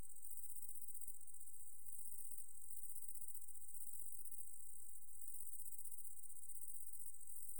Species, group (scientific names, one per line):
Tettigonia viridissima
Orthoptera